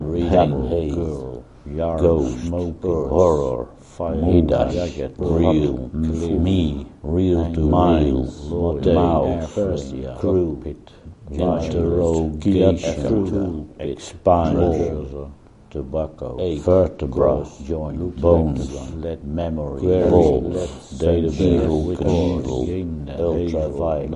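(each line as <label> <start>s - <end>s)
A deep male voice reading English words with overlapping speech. 0.0s - 24.2s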